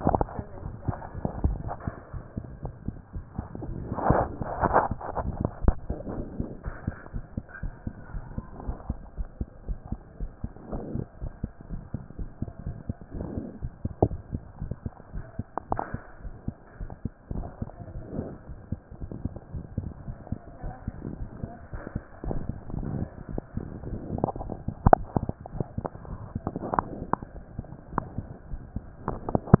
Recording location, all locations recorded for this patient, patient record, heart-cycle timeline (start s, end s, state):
mitral valve (MV)
aortic valve (AV)+mitral valve (MV)
#Age: Child
#Sex: Male
#Height: 102.0 cm
#Weight: 19.9 kg
#Pregnancy status: False
#Murmur: Absent
#Murmur locations: nan
#Most audible location: nan
#Systolic murmur timing: nan
#Systolic murmur shape: nan
#Systolic murmur grading: nan
#Systolic murmur pitch: nan
#Systolic murmur quality: nan
#Diastolic murmur timing: nan
#Diastolic murmur shape: nan
#Diastolic murmur grading: nan
#Diastolic murmur pitch: nan
#Diastolic murmur quality: nan
#Outcome: Normal
#Campaign: 2014 screening campaign
0.00	6.06	unannotated
6.06	6.14	diastole
6.14	6.26	S1
6.26	6.38	systole
6.38	6.48	S2
6.48	6.66	diastole
6.66	6.76	S1
6.76	6.86	systole
6.86	6.96	S2
6.96	7.14	diastole
7.14	7.24	S1
7.24	7.36	systole
7.36	7.44	S2
7.44	7.62	diastole
7.62	7.74	S1
7.74	7.86	systole
7.86	7.94	S2
7.94	8.14	diastole
8.14	8.24	S1
8.24	8.36	systole
8.36	8.44	S2
8.44	8.66	diastole
8.66	8.76	S1
8.76	8.88	systole
8.88	8.98	S2
8.98	9.18	diastole
9.18	9.28	S1
9.28	9.40	systole
9.40	9.48	S2
9.48	9.66	diastole
9.66	9.78	S1
9.78	9.90	systole
9.90	10.00	S2
10.00	10.20	diastole
10.20	10.30	S1
10.30	10.42	systole
10.42	10.52	S2
10.52	10.72	diastole
10.72	10.84	S1
10.84	10.94	systole
10.94	11.04	S2
11.04	11.22	diastole
11.22	11.32	S1
11.32	11.42	systole
11.42	11.50	S2
11.50	11.70	diastole
11.70	11.82	S1
11.82	11.94	systole
11.94	12.02	S2
12.02	12.18	diastole
12.18	12.30	S1
12.30	12.40	systole
12.40	12.50	S2
12.50	12.66	diastole
12.66	12.76	S1
12.76	12.88	systole
12.88	12.96	S2
12.96	13.16	diastole
13.16	29.60	unannotated